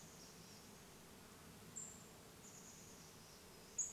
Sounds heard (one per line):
Pacific-slope Flycatcher call
Chestnut-backed Chickadee call
insect buzz